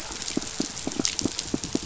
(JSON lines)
{"label": "biophony, pulse", "recorder": "SoundTrap 500"}